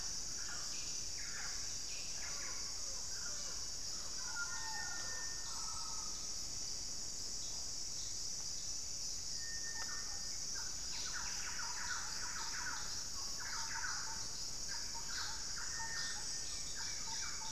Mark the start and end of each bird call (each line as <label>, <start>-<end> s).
Buff-breasted Wren (Cantorchilus leucotis), 0.0-3.0 s
Mealy Parrot (Amazona farinosa), 0.0-15.0 s
Thrush-like Wren (Campylorhynchus turdinus), 10.5-17.5 s
Buff-breasted Wren (Cantorchilus leucotis), 10.7-13.2 s
Cinereous Tinamou (Crypturellus cinereus), 15.6-17.5 s